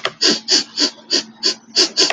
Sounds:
Sniff